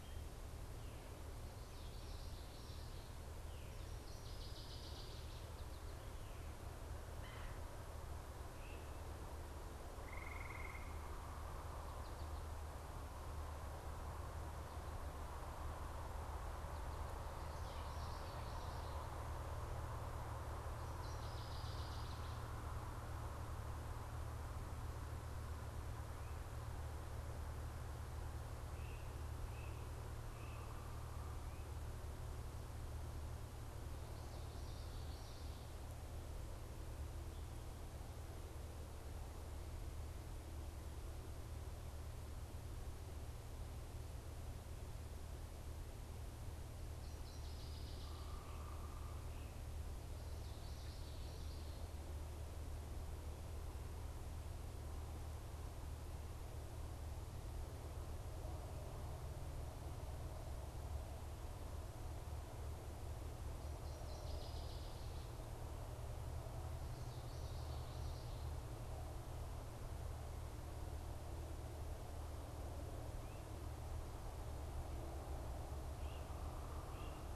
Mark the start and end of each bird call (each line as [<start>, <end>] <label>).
[1.41, 3.01] Common Yellowthroat (Geothlypis trichas)
[3.81, 5.61] Northern Waterthrush (Parkesia noveboracensis)
[6.91, 7.81] Red-bellied Woodpecker (Melanerpes carolinus)
[8.41, 9.01] Great Crested Flycatcher (Myiarchus crinitus)
[17.51, 19.31] Common Yellowthroat (Geothlypis trichas)
[20.71, 22.71] Northern Waterthrush (Parkesia noveboracensis)
[28.51, 30.91] Great Crested Flycatcher (Myiarchus crinitus)
[34.31, 35.91] Common Yellowthroat (Geothlypis trichas)
[46.91, 48.61] Northern Waterthrush (Parkesia noveboracensis)
[50.11, 52.21] Common Yellowthroat (Geothlypis trichas)
[63.51, 65.41] Northern Waterthrush (Parkesia noveboracensis)
[67.01, 68.61] Common Yellowthroat (Geothlypis trichas)
[75.41, 77.31] Great Crested Flycatcher (Myiarchus crinitus)